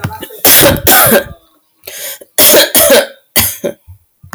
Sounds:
Sniff